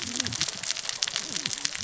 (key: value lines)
label: biophony, cascading saw
recorder: SoundTrap 600 or HydroMoth